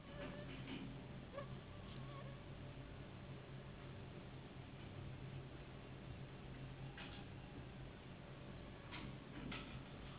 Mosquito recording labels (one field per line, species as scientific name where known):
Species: Anopheles gambiae s.s.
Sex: female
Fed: unfed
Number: one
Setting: insect culture